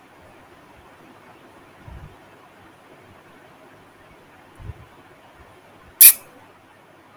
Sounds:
Sigh